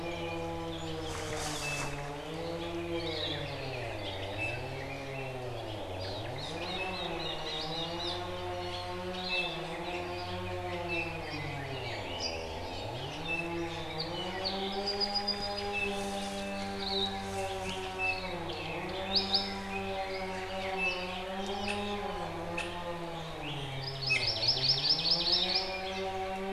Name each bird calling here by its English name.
Red-billed Leiothrix, Hawaii Akepa, Apapane, Omao, Iiwi, Hawaii Amakihi